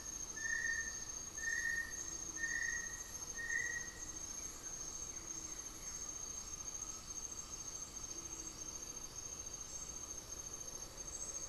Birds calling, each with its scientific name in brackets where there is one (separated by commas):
Blue-gray Saltator (Saltator coerulescens), Undulated Tinamou (Crypturellus undulatus)